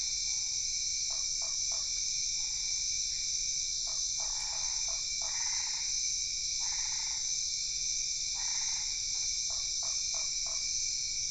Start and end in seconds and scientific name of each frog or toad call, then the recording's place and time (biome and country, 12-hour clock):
1.0	2.0	Boana lundii
3.7	5.1	Boana lundii
4.1	7.3	Boana albopunctata
8.3	9.0	Boana albopunctata
9.0	10.8	Boana lundii
Cerrado, Brazil, 8:00pm